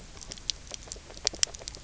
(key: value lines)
label: biophony, grazing
recorder: SoundTrap 300